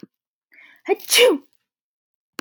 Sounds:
Sneeze